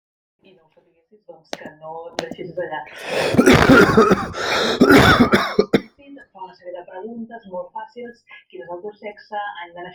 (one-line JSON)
{"expert_labels": [{"quality": "ok", "cough_type": "wet", "dyspnea": false, "wheezing": false, "stridor": false, "choking": false, "congestion": false, "nothing": true, "diagnosis": "lower respiratory tract infection", "severity": "mild"}], "age": 37, "gender": "male", "respiratory_condition": false, "fever_muscle_pain": false, "status": "symptomatic"}